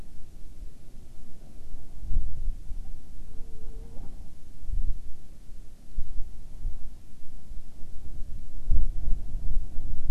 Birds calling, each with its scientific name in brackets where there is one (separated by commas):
Hawaiian Petrel (Pterodroma sandwichensis)